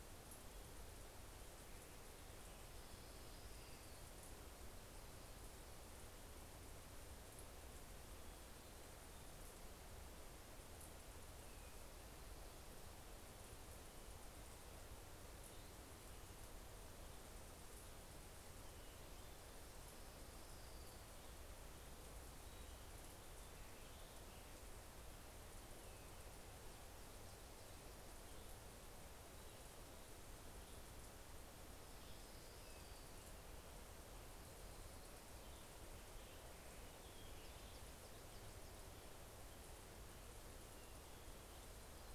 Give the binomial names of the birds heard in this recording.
Leiothlypis celata